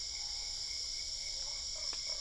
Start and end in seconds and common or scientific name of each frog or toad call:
1.3	2.2	Usina tree frog